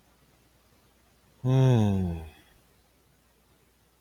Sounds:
Sigh